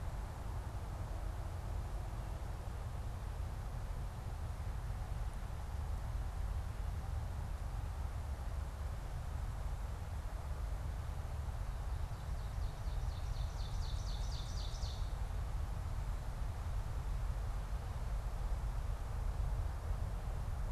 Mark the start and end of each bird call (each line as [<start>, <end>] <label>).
[11.75, 15.45] Ovenbird (Seiurus aurocapilla)